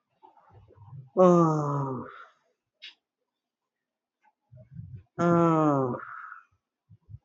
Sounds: Sigh